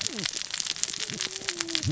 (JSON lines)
{"label": "biophony, cascading saw", "recorder": "SoundTrap 600 or HydroMoth"}